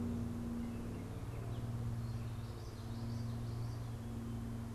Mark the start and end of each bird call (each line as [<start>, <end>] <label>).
[0.00, 4.74] Gray Catbird (Dumetella carolinensis)
[2.40, 4.00] Common Yellowthroat (Geothlypis trichas)